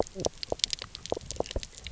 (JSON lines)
{"label": "biophony, knock croak", "recorder": "SoundTrap 300"}